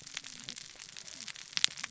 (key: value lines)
label: biophony, cascading saw
recorder: SoundTrap 600 or HydroMoth